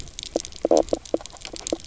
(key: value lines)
label: biophony, knock croak
recorder: SoundTrap 300